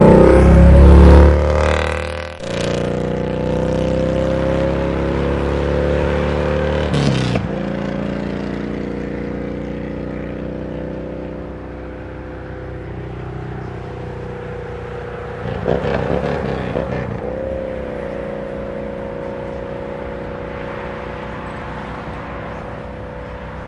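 A motorcycle engine revving and fading away on a road. 0.0 - 23.7
Cars and other traffic driving by on a road. 11.7 - 23.7

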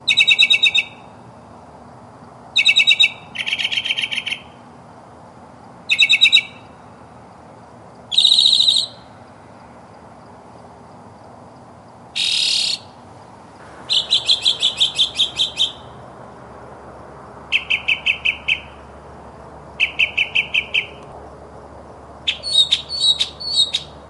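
A bird is singing nearby. 0.0 - 1.3
A bird is singing nearby. 2.3 - 4.9
A bird is singing nearby. 5.7 - 7.3
A bird is singing nearby. 7.9 - 9.7
A bird is singing nearby. 11.8 - 12.9
A bird is singing nearby. 13.6 - 16.2
A bird is singing nearby. 17.3 - 18.9
A bird is chattering nearby. 19.6 - 21.0
A bird is chattering nearby. 22.0 - 24.1

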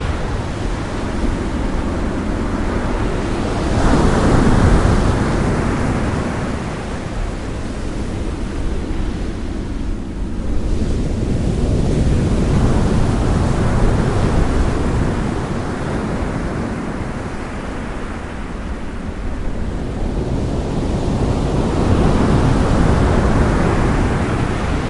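A powerful, low-pitched roar of waves rolls in repeatedly, driven by a rain-laden breeze. 0.0 - 24.9

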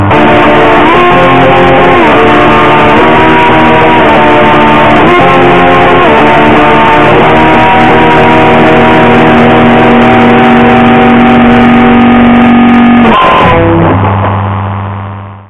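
A guitar is played with a harsh, clattering tone that lacks musical clarity and gradually fades, ending with a broken, incomplete sound. 0.0 - 15.5

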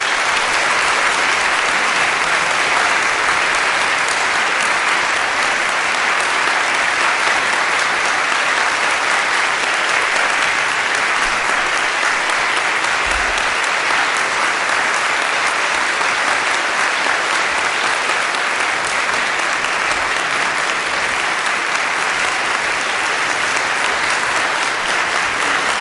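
A large audience applauding continuously. 0.0 - 25.8

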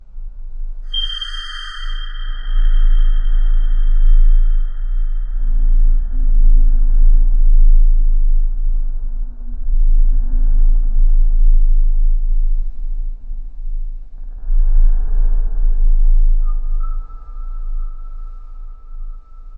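An eerie, high-pitched squeak like a strange whistle. 0.9 - 2.7
A low, muffled humming sound. 2.5 - 13.2
A soft, dry hissing sound. 12.2 - 14.5
A low, muffled humming sound. 14.4 - 17.1
Two brief, creaky squeaks like an old door opening. 16.5 - 19.6

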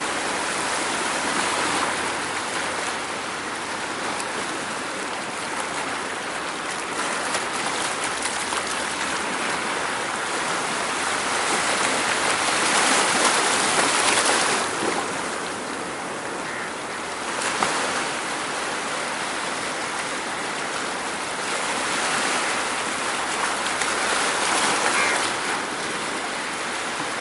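Gentle splashes of water. 0.0 - 11.2
Intense splashing water sounds. 11.1 - 15.8
Gentle splashes of water. 15.7 - 27.2

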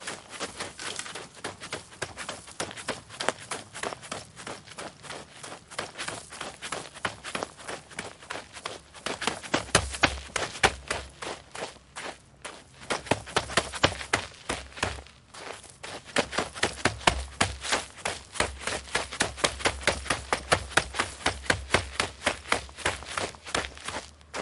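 A person is running and stepping loudly on gravel repeatedly. 0.0 - 24.1
Someone is running with loud footsteps on gravel. 24.2 - 24.4

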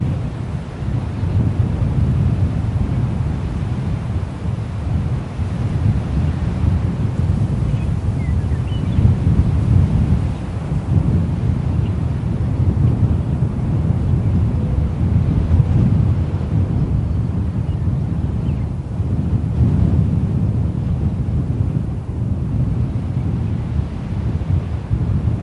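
Constant wind blowing. 0.0 - 25.4
A bird sings quietly. 6.9 - 10.1
An owl hoots quietly. 14.6 - 17.0
A bird sings quietly. 17.0 - 19.3

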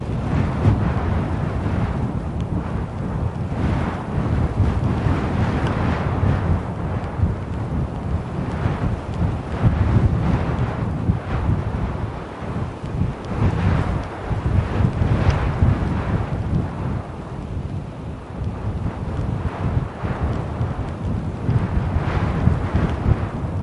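Irregular wind blows with varying intensity. 0.0 - 23.6

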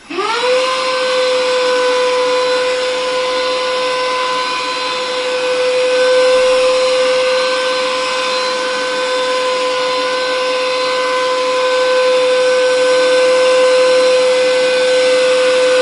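A vacuum cleaner howls loudly while in use. 0.0 - 15.8

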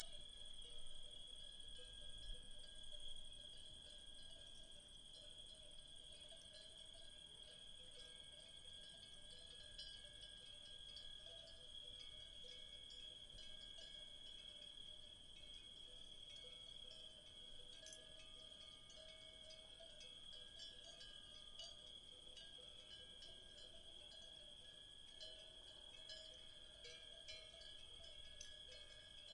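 Bells chime softly in the distance. 0.0 - 29.3
Crickets chirp repeatedly. 0.0 - 29.3

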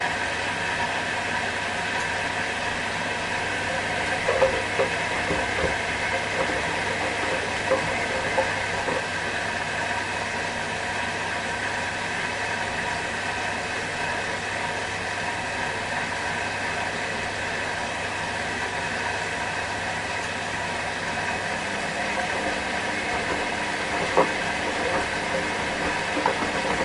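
A washing machine pumps water continuously during a wash cycle with a uniform, slightly raspy sound. 0.0 - 26.8

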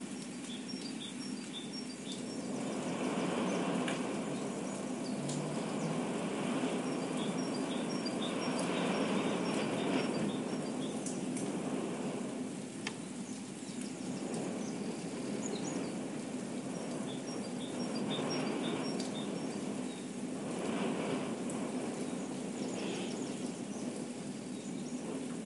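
A bird chirps brightly in a repetitive pattern in the distant background. 0.0 - 25.4
A fire crackles gently in an open fireplace. 0.0 - 25.4
Wind is blowing steadily in the background. 2.1 - 25.4

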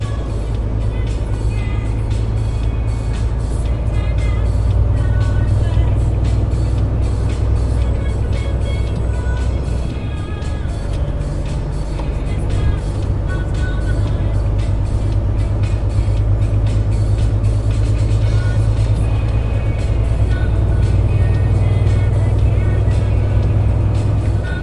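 A big truck engine rumbles continuously. 0.0 - 24.6
Background music plays with a female singing. 0.0 - 24.6

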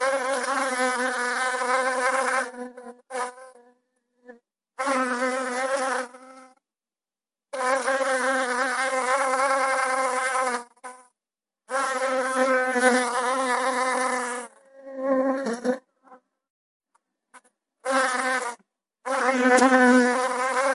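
A fly buzzes loudly and intermittently. 0.0 - 16.2
A fly buzzes loudly and intermittently. 17.3 - 20.7

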